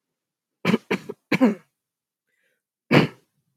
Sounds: Throat clearing